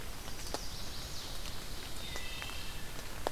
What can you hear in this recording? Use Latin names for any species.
Setophaga pensylvanica, Seiurus aurocapilla, Hylocichla mustelina